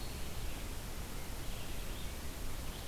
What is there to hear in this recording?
Red-eyed Vireo